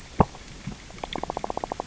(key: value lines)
label: biophony, knock
recorder: SoundTrap 600 or HydroMoth